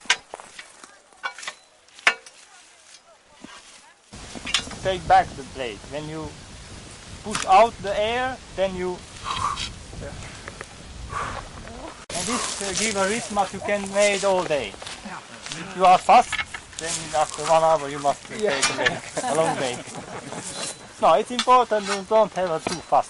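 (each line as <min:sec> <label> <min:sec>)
0:00.0 Metal scythe cutting plants. 0:04.6
0:04.8 An English-speaking man explains something to a group of people. 0:23.1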